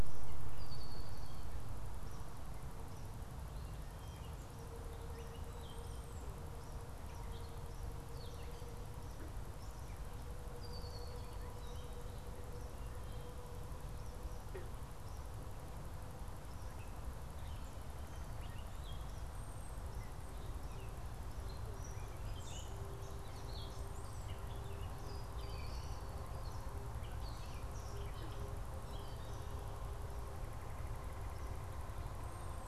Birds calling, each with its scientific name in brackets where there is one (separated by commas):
Gray Catbird (Dumetella carolinensis), Red-winged Blackbird (Agelaius phoeniceus)